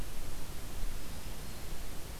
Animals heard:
forest ambience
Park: Marsh-Billings-Rockefeller National Historical Park